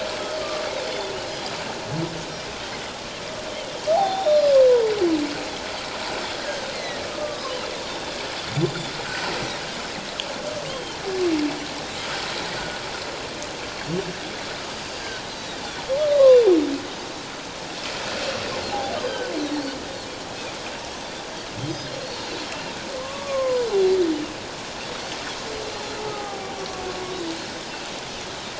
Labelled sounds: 0.9	1.5	Pacific white-sided dolphin, 3.4 to 5.1 kHz
3.9	4.3	humpback whale, 0.78 to 0.91 kHz
4.0	4.4	Pacific white-sided dolphin, 3.5 to 3.7 kHz
6.4	7.5	Pacific white-sided dolphin, 1.0 to 2.2 kHz
8.6	9.3	Pacific white-sided dolphin, 1.3 to 7.2 kHz
10.6	11.0	Pacific white-sided dolphin, 2.8 to 3.3 kHz
14.8	15.8	Pacific white-sided dolphin, 3.3 to 4.8 kHz
16.0	16.4	humpback whale, 0.97 to 1.3 kHz
19.0	19.2	Pacific white-sided dolphin, 3.0 to 3.2 kHz
20.3	20.6	Pacific white-sided dolphin, 2.3 to 2.6 kHz
22.0	22.4	Pacific white-sided dolphin, 3.9 to 4.5 kHz
23.0	23.7	humpback whale, 0.94 to 1.2 kHz
23.6	24.0	Pacific white-sided dolphin, 3.9 to 4.2 kHz
26.1	26.5	humpback whale, 0.78 to 1.3 kHz

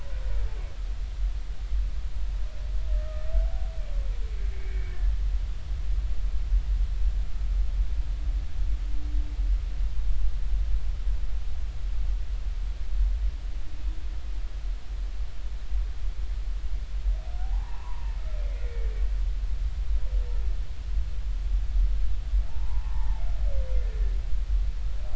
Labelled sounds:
2.9	3.3	humpback whale, 1.2 to 1.3 kHz
4.5	5.0	humpback whale, 2.1 to 2.4 kHz
17.4	18.8	humpback whale, 0.80 to 2.2 kHz
22.5	23.2	humpback whale, 0.80 to 1.2 kHz

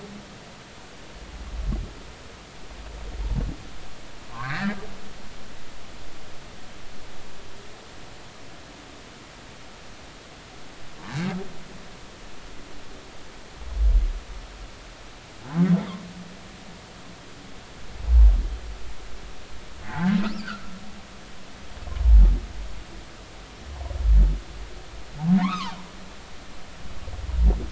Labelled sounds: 4.3	4.8	humpback whale, 0.86 to 2.1 kHz
19.8	20.6	humpback whale, 0.80 to 5.6 kHz
25.4	25.7	humpback whale, 0.80 to 2.8 kHz

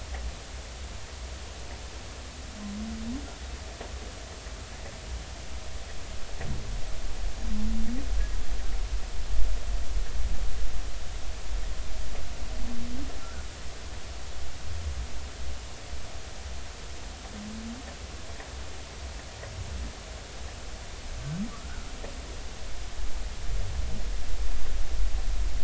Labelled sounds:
13.2	13.5	humpback whale, 1.3 to 1.6 kHz
21.5	21.9	humpback whale, 1.1 to 1.6 kHz

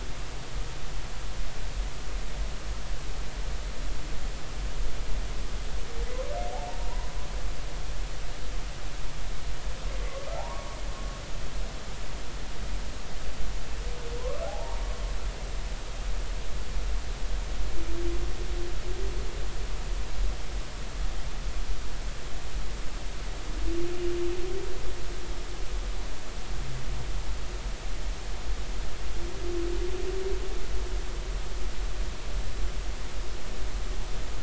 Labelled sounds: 6.7	7.1	humpback whale, 0.86 to 1.1 kHz
10.3	10.8	humpback whale, 0.80 to 1.2 kHz
14.2	14.8	humpback whale, 0.80 to 1.3 kHz

